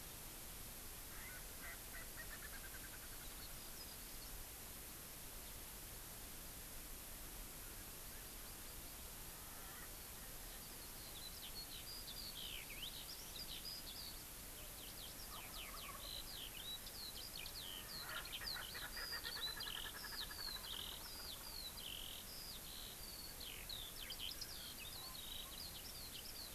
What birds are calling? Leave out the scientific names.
Erckel's Francolin, Eurasian Skylark, Wild Turkey